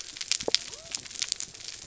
{"label": "biophony", "recorder": "SoundTrap 300"}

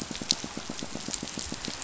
{"label": "biophony, pulse", "recorder": "SoundTrap 500"}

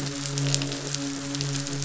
{"label": "biophony, midshipman", "recorder": "SoundTrap 500"}
{"label": "biophony, croak", "recorder": "SoundTrap 500"}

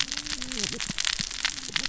{"label": "biophony, cascading saw", "recorder": "SoundTrap 600 or HydroMoth"}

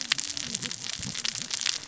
{"label": "biophony, cascading saw", "recorder": "SoundTrap 600 or HydroMoth"}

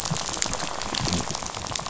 {"label": "biophony", "recorder": "SoundTrap 500"}
{"label": "biophony, rattle", "recorder": "SoundTrap 500"}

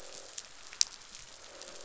{"label": "biophony, croak", "recorder": "SoundTrap 500"}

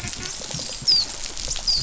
{"label": "biophony, dolphin", "recorder": "SoundTrap 500"}
{"label": "biophony", "recorder": "SoundTrap 500"}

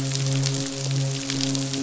{"label": "biophony, midshipman", "recorder": "SoundTrap 500"}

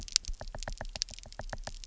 {"label": "biophony, knock", "recorder": "SoundTrap 300"}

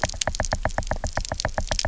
{"label": "biophony, knock", "recorder": "SoundTrap 300"}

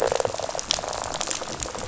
{"label": "biophony, rattle", "recorder": "SoundTrap 500"}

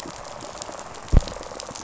{"label": "biophony, rattle response", "recorder": "SoundTrap 500"}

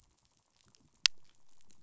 {"label": "biophony, pulse", "recorder": "SoundTrap 500"}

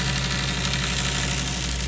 {"label": "anthrophony, boat engine", "recorder": "SoundTrap 500"}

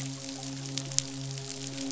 {"label": "biophony, midshipman", "recorder": "SoundTrap 500"}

